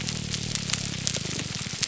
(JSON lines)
{"label": "biophony", "recorder": "SoundTrap 300"}